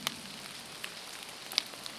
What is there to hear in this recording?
airplane, rain